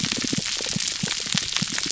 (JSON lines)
{"label": "biophony, pulse", "recorder": "SoundTrap 300"}